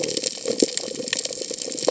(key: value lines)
label: biophony
recorder: HydroMoth